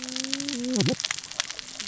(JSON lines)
{"label": "biophony, cascading saw", "recorder": "SoundTrap 600 or HydroMoth"}